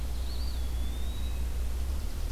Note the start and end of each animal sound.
[0.00, 1.58] Eastern Wood-Pewee (Contopus virens)
[0.00, 2.31] Red-eyed Vireo (Vireo olivaceus)
[0.00, 2.31] unidentified call
[1.58, 2.31] Chipping Sparrow (Spizella passerina)

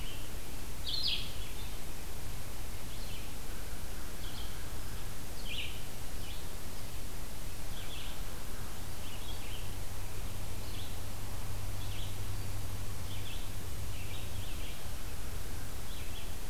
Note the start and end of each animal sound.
[0.00, 16.50] Red-eyed Vireo (Vireo olivaceus)
[3.45, 5.01] American Crow (Corvus brachyrhynchos)
[8.26, 9.71] American Crow (Corvus brachyrhynchos)

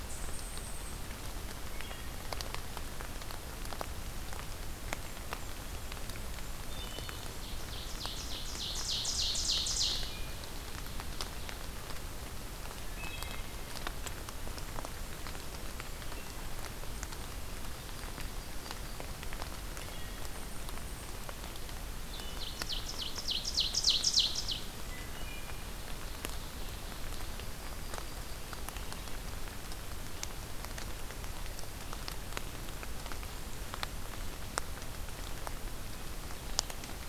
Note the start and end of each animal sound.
[0.00, 1.00] unidentified call
[6.61, 7.30] Wood Thrush (Hylocichla mustelina)
[7.29, 10.23] Ovenbird (Seiurus aurocapilla)
[9.80, 10.44] Wood Thrush (Hylocichla mustelina)
[12.77, 13.73] Wood Thrush (Hylocichla mustelina)
[17.45, 19.04] Yellow-rumped Warbler (Setophaga coronata)
[19.55, 20.36] Wood Thrush (Hylocichla mustelina)
[20.01, 21.27] unidentified call
[22.01, 24.67] Ovenbird (Seiurus aurocapilla)
[24.86, 25.64] Wood Thrush (Hylocichla mustelina)
[25.70, 27.28] Ovenbird (Seiurus aurocapilla)
[27.13, 28.63] Yellow-rumped Warbler (Setophaga coronata)

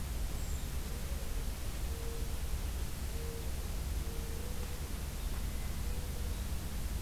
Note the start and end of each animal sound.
[0.24, 0.67] Brown Creeper (Certhia americana)

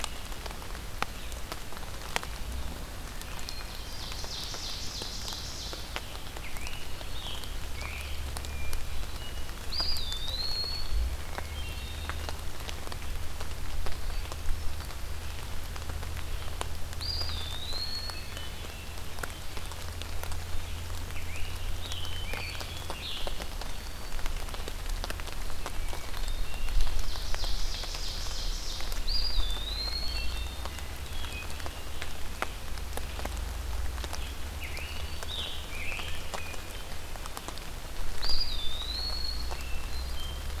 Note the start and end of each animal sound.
[3.07, 4.09] Hermit Thrush (Catharus guttatus)
[3.41, 5.88] Ovenbird (Seiurus aurocapilla)
[6.39, 8.12] Scarlet Tanager (Piranga olivacea)
[8.34, 9.63] Hermit Thrush (Catharus guttatus)
[9.54, 11.13] Eastern Wood-Pewee (Contopus virens)
[11.41, 12.31] Hermit Thrush (Catharus guttatus)
[16.88, 18.36] Eastern Wood-Pewee (Contopus virens)
[18.00, 19.00] Hermit Thrush (Catharus guttatus)
[21.10, 23.31] Scarlet Tanager (Piranga olivacea)
[25.61, 26.98] Hermit Thrush (Catharus guttatus)
[27.00, 29.08] Ovenbird (Seiurus aurocapilla)
[29.02, 30.26] Eastern Wood-Pewee (Contopus virens)
[29.77, 31.54] Hermit Thrush (Catharus guttatus)
[34.58, 36.27] Scarlet Tanager (Piranga olivacea)
[35.94, 37.24] Hermit Thrush (Catharus guttatus)
[37.92, 39.51] Eastern Wood-Pewee (Contopus virens)
[39.45, 40.60] Hermit Thrush (Catharus guttatus)

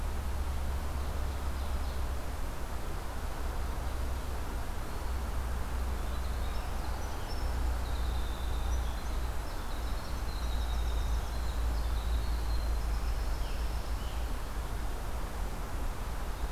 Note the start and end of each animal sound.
[0.65, 2.13] Ovenbird (Seiurus aurocapilla)
[5.85, 14.17] Winter Wren (Troglodytes hiemalis)

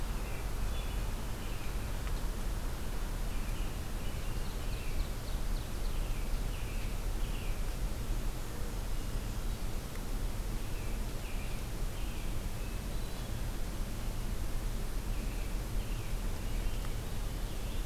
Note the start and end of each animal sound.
[0.00, 1.87] American Robin (Turdus migratorius)
[3.21, 5.09] American Robin (Turdus migratorius)
[4.21, 5.97] Ovenbird (Seiurus aurocapilla)
[5.79, 7.67] American Robin (Turdus migratorius)
[7.87, 9.51] Black-and-white Warbler (Mniotilta varia)
[8.81, 9.87] Hermit Thrush (Catharus guttatus)
[10.53, 12.38] American Robin (Turdus migratorius)
[12.50, 13.51] Hermit Thrush (Catharus guttatus)
[14.98, 17.83] American Robin (Turdus migratorius)

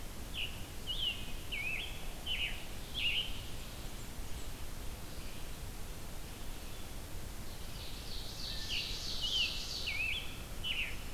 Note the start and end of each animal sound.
[0.05, 3.36] Scarlet Tanager (Piranga olivacea)
[7.48, 10.07] Ovenbird (Seiurus aurocapilla)
[8.58, 11.13] Scarlet Tanager (Piranga olivacea)

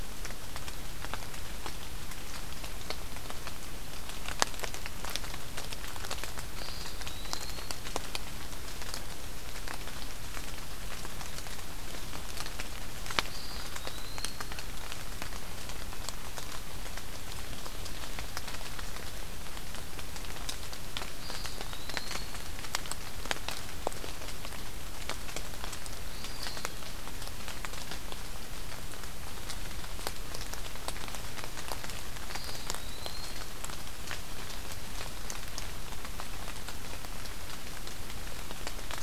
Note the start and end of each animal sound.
[6.37, 7.77] Eastern Wood-Pewee (Contopus virens)
[13.14, 14.61] Eastern Wood-Pewee (Contopus virens)
[21.02, 22.41] Eastern Wood-Pewee (Contopus virens)
[25.98, 26.75] Eastern Wood-Pewee (Contopus virens)
[32.25, 33.44] Eastern Wood-Pewee (Contopus virens)

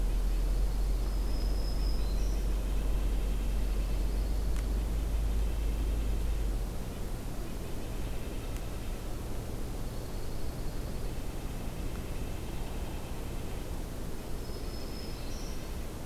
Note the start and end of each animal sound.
[0.00, 9.24] Red-breasted Nuthatch (Sitta canadensis)
[0.15, 1.32] Dark-eyed Junco (Junco hyemalis)
[0.95, 2.46] Black-throated Green Warbler (Setophaga virens)
[3.39, 4.91] Dark-eyed Junco (Junco hyemalis)
[9.70, 11.39] Dark-eyed Junco (Junco hyemalis)
[10.69, 13.77] Red-breasted Nuthatch (Sitta canadensis)
[14.33, 16.05] Red-breasted Nuthatch (Sitta canadensis)
[14.41, 15.71] Black-throated Green Warbler (Setophaga virens)

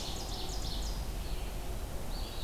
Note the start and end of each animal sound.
[0.00, 1.15] Ovenbird (Seiurus aurocapilla)
[0.00, 2.43] Red-eyed Vireo (Vireo olivaceus)

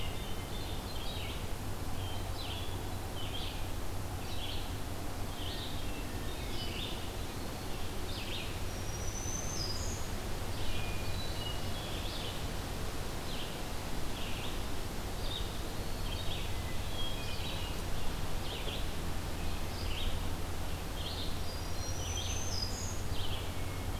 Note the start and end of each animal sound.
[0.00, 1.01] Hermit Thrush (Catharus guttatus)
[0.00, 10.86] Red-eyed Vireo (Vireo olivaceus)
[1.93, 3.00] Hermit Thrush (Catharus guttatus)
[5.45, 6.79] Hermit Thrush (Catharus guttatus)
[8.46, 10.12] Black-throated Green Warbler (Setophaga virens)
[10.72, 11.87] Hermit Thrush (Catharus guttatus)
[11.67, 23.99] Red-eyed Vireo (Vireo olivaceus)
[15.03, 16.36] Eastern Wood-Pewee (Contopus virens)
[16.31, 17.64] Hermit Thrush (Catharus guttatus)
[21.17, 22.09] Hermit Thrush (Catharus guttatus)
[21.39, 23.11] Black-throated Green Warbler (Setophaga virens)

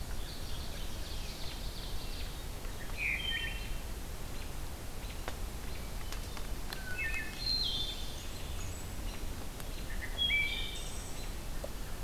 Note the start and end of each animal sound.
[0.08, 0.94] Mourning Warbler (Geothlypis philadelphia)
[0.14, 2.47] Ovenbird (Seiurus aurocapilla)
[2.80, 3.72] Wood Thrush (Hylocichla mustelina)
[4.30, 5.87] American Robin (Turdus migratorius)
[6.79, 8.10] Wood Thrush (Hylocichla mustelina)
[7.46, 8.84] Veery (Catharus fuscescens)
[10.02, 11.33] Wood Thrush (Hylocichla mustelina)

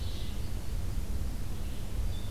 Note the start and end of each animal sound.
[0.00, 2.31] Red-eyed Vireo (Vireo olivaceus)

